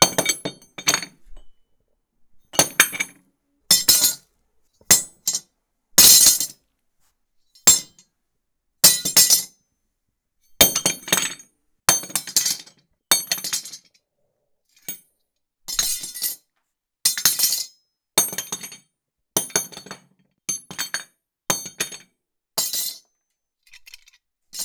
Are metals making the clanking noises?
yes